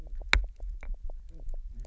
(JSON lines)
{"label": "biophony, knock croak", "recorder": "SoundTrap 300"}